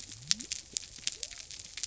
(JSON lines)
{"label": "biophony", "recorder": "SoundTrap 300"}